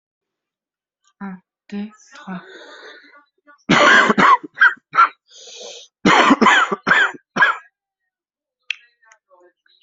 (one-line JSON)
{"expert_labels": [{"quality": "good", "cough_type": "dry", "dyspnea": false, "wheezing": false, "stridor": false, "choking": false, "congestion": false, "nothing": true, "diagnosis": "healthy cough", "severity": "pseudocough/healthy cough"}], "age": 25, "gender": "male", "respiratory_condition": true, "fever_muscle_pain": false, "status": "COVID-19"}